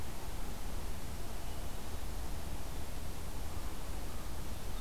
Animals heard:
forest ambience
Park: Acadia National Park